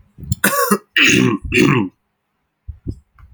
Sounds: Throat clearing